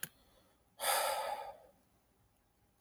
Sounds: Sigh